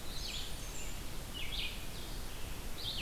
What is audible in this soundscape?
Eastern Wood-Pewee, Blackburnian Warbler, Blue-headed Vireo, Red-eyed Vireo